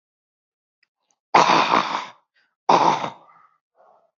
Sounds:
Throat clearing